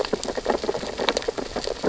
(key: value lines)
label: biophony, sea urchins (Echinidae)
recorder: SoundTrap 600 or HydroMoth